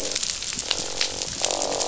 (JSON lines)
{"label": "biophony, croak", "recorder": "SoundTrap 500"}